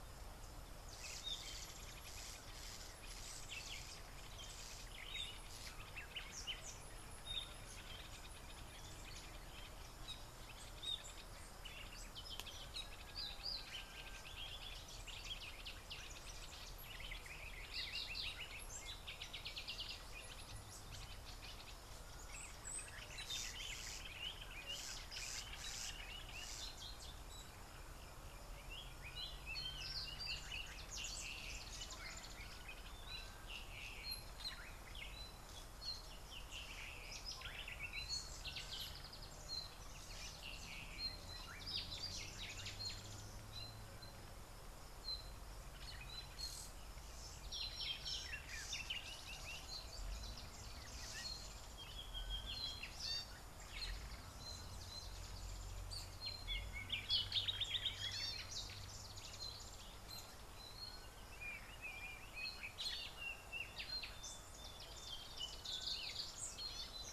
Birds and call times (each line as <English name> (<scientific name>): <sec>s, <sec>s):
Common Bulbul (Pycnonotus barbatus): 14.7s
Black-backed Puffback (Dryoscopus cubla): 25.2s
Gray-backed Camaroptera (Camaroptera brevicaudata): 58.2s